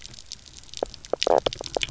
{"label": "biophony, knock croak", "recorder": "SoundTrap 300"}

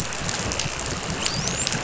{"label": "biophony, dolphin", "recorder": "SoundTrap 500"}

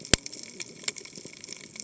{"label": "biophony, cascading saw", "recorder": "HydroMoth"}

